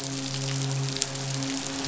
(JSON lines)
{"label": "biophony, midshipman", "recorder": "SoundTrap 500"}